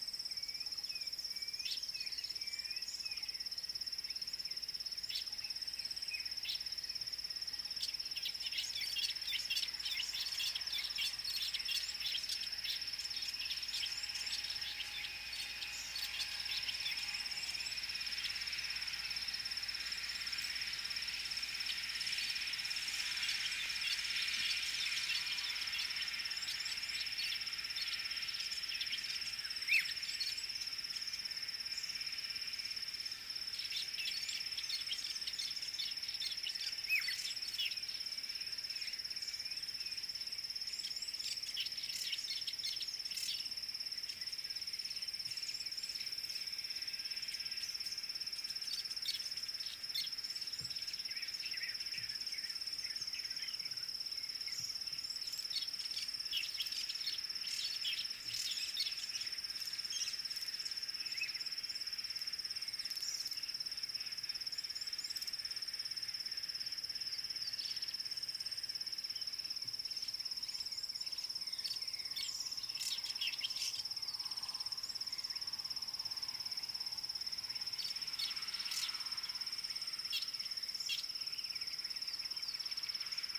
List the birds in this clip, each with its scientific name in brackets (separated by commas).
Fork-tailed Drongo (Dicrurus adsimilis), African Black-headed Oriole (Oriolus larvatus), Klaas's Cuckoo (Chrysococcyx klaas), Rattling Cisticola (Cisticola chiniana)